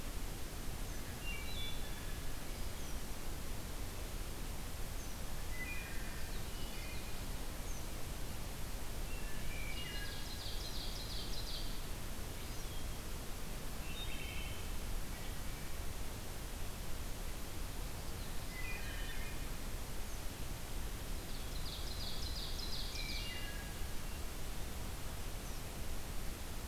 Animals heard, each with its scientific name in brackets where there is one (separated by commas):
Wood Thrush (Hylocichla mustelina), Common Yellowthroat (Geothlypis trichas), Ovenbird (Seiurus aurocapilla)